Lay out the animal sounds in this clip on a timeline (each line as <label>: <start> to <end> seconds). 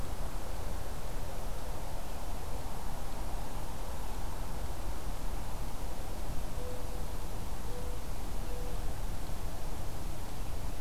Mourning Dove (Zenaida macroura): 6.4 to 8.8 seconds